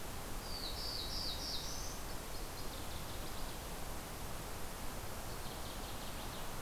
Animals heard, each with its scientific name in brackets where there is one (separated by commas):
Black-throated Blue Warbler (Setophaga caerulescens), Northern Waterthrush (Parkesia noveboracensis)